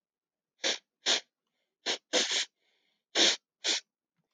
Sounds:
Sniff